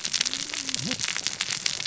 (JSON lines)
{"label": "biophony, cascading saw", "recorder": "SoundTrap 600 or HydroMoth"}